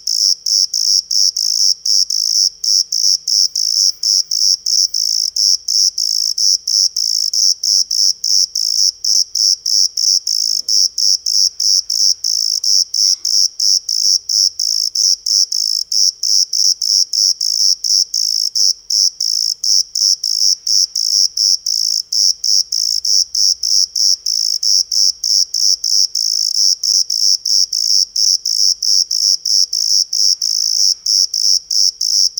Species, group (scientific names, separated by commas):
Eumodicogryllus bordigalensis, Orthoptera